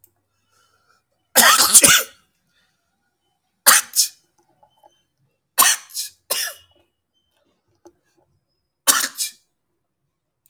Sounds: Sneeze